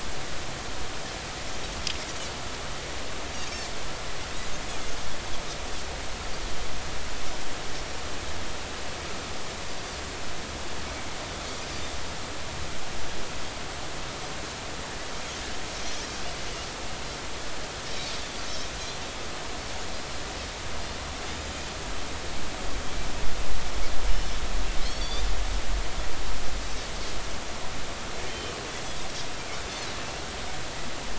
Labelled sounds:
24.1	24.4	Pacific white-sided dolphin, 5.2 to 5.4 kHz
24.8	25.2	Pacific white-sided dolphin, 3.4 to 4.9 kHz
28.3	28.6	Pacific white-sided dolphin, 3.0 to 3.2 kHz

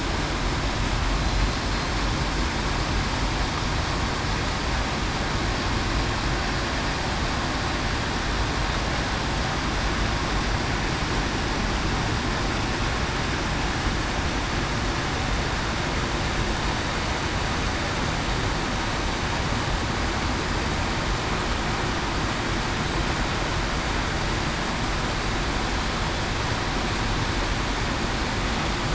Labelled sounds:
1.2	1.6	killer whale, southern resident, 4.0 to 4.1 kHz

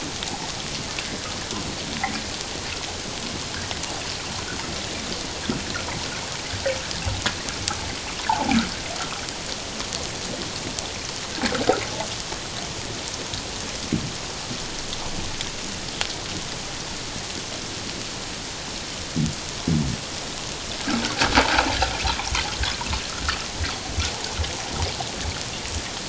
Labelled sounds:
8.3	8.6	water noise, 0.78 to 1.0 kHz

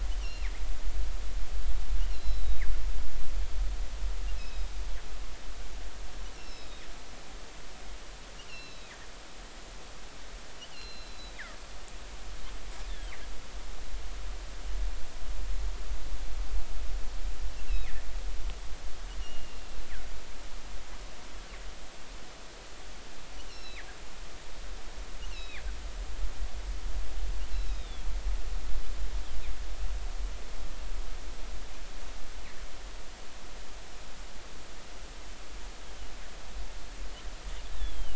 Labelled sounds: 0.2	0.6	killer whale, northern resident, G clan, 1.8 to 3.0 kHz
2.1	2.6	killer whale, northern resident, G clan, 3.7 to 5.4 kHz
4.4	4.7	killer whale, northern resident, G clan, 3.7 to 4.0 kHz
6.3	6.8	killer whale, northern resident, G clan, 2.5 to 5.9 kHz
8.5	8.9	killer whale, northern resident, G clan, 2.6 to 5.6 kHz
10.7	11.4	killer whale, northern resident, G clan, 2.7 to 4.3 kHz
12.9	13.1	killer whale, northern resident, G clan, 3.0 to 3.7 kHz
19.2	19.8	killer whale, northern resident, G clan, 2.7 to 3.0 kHz
23.4	23.9	killer whale, northern resident, G clan, 1.6 to 5.9 kHz
25.3	25.6	killer whale, northern resident, G clan, 3.3 to 4.3 kHz
26.2	28.0	killer whale, northern resident, G clan, 1.5 to 4.1 kHz
37.7	38.1	killer whale, northern resident, G clan, 2.8 to 3.9 kHz

